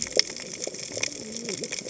{"label": "biophony, cascading saw", "recorder": "HydroMoth"}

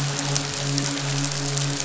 {"label": "biophony, midshipman", "recorder": "SoundTrap 500"}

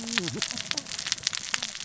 {"label": "biophony, cascading saw", "recorder": "SoundTrap 600 or HydroMoth"}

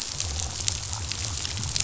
{"label": "biophony", "recorder": "SoundTrap 500"}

